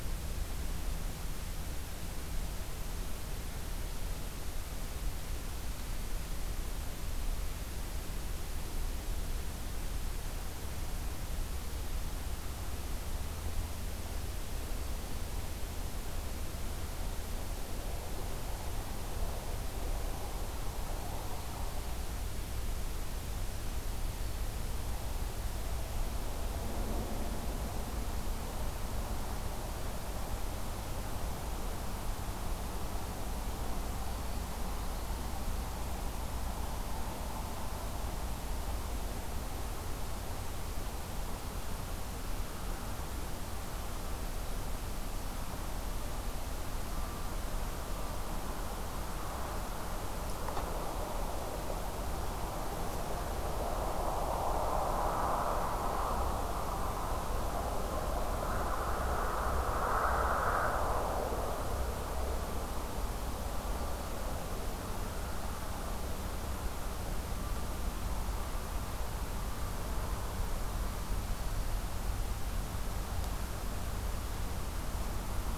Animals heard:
forest ambience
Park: Acadia National Park